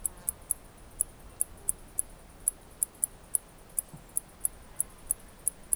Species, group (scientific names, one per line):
Decticus albifrons
Orthoptera